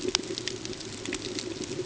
{"label": "ambient", "recorder": "HydroMoth"}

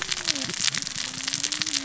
{"label": "biophony, cascading saw", "recorder": "SoundTrap 600 or HydroMoth"}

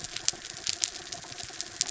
{"label": "anthrophony, mechanical", "recorder": "SoundTrap 300"}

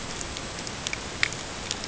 {"label": "ambient", "recorder": "HydroMoth"}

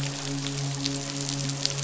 {"label": "biophony, midshipman", "recorder": "SoundTrap 500"}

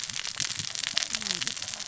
{"label": "biophony, cascading saw", "recorder": "SoundTrap 600 or HydroMoth"}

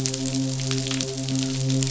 {"label": "biophony, midshipman", "recorder": "SoundTrap 500"}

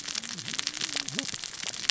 {"label": "biophony, cascading saw", "recorder": "SoundTrap 600 or HydroMoth"}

